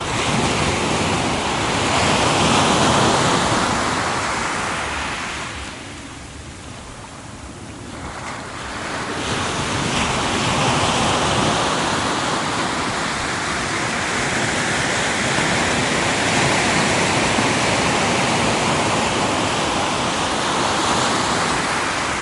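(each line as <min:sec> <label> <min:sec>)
0:00.0 Medium-sized waves break at the beachfront with gusts of wind fading in and out. 0:22.2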